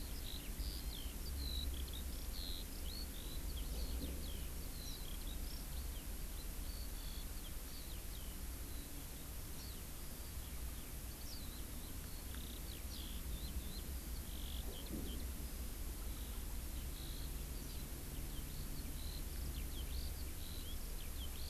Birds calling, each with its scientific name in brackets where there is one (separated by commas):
Eurasian Skylark (Alauda arvensis)